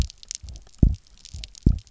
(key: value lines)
label: biophony, double pulse
recorder: SoundTrap 300